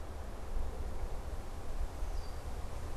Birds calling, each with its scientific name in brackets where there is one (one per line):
Red-winged Blackbird (Agelaius phoeniceus)